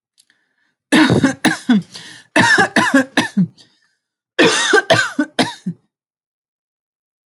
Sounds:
Cough